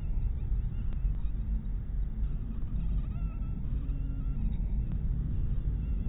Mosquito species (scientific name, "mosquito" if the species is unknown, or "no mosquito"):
mosquito